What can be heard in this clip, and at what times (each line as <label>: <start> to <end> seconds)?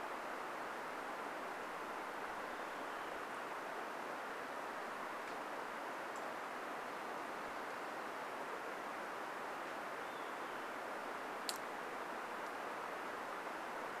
Olive-sided Flycatcher song: 2 to 4 seconds
unidentified bird chip note: 6 to 8 seconds
Olive-sided Flycatcher song: 10 to 12 seconds